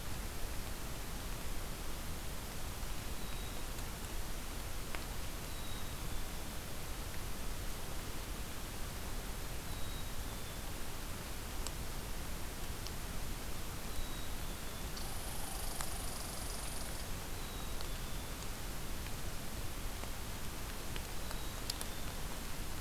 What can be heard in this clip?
Black-capped Chickadee, Red Squirrel